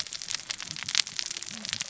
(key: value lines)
label: biophony, cascading saw
recorder: SoundTrap 600 or HydroMoth